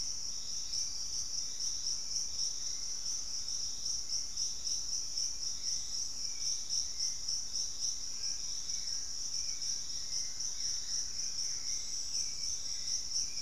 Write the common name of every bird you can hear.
Hauxwell's Thrush, Fasciated Antshrike, Black-faced Antthrush, Buff-throated Woodcreeper